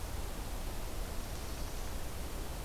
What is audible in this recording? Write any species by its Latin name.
Setophaga caerulescens